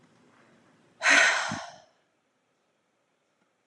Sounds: Sigh